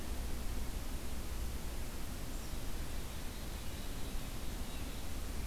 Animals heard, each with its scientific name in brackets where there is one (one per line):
Black-capped Chickadee (Poecile atricapillus)